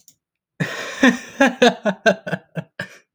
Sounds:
Laughter